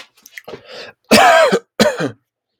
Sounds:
Cough